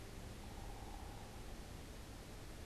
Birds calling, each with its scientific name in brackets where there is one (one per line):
unidentified bird